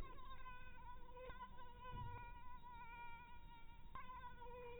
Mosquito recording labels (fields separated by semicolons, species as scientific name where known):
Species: Anopheles maculatus; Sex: female; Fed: blood-fed; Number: one; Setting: cup